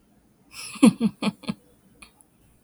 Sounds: Laughter